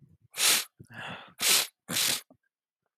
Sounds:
Sniff